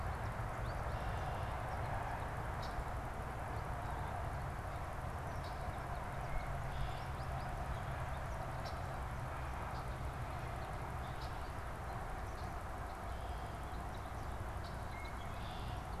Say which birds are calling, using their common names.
American Goldfinch, Red-winged Blackbird